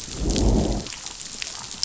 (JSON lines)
{"label": "biophony, growl", "recorder": "SoundTrap 500"}